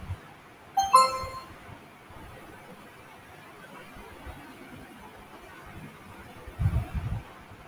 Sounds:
Sniff